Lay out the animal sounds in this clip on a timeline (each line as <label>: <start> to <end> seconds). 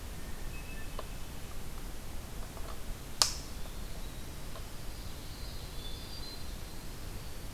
Hermit Thrush (Catharus guttatus): 0.0 to 1.0 seconds
Winter Wren (Troglodytes hiemalis): 3.5 to 7.5 seconds
Common Yellowthroat (Geothlypis trichas): 4.9 to 6.6 seconds
Hermit Thrush (Catharus guttatus): 5.7 to 6.6 seconds